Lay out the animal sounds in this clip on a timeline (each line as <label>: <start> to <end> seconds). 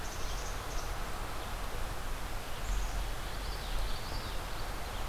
Black-capped Chickadee (Poecile atricapillus): 0.0 to 1.0 seconds
Black-capped Chickadee (Poecile atricapillus): 2.5 to 3.0 seconds
Common Yellowthroat (Geothlypis trichas): 3.2 to 4.8 seconds